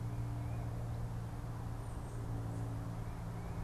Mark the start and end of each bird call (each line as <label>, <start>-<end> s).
Tufted Titmouse (Baeolophus bicolor), 0.0-3.6 s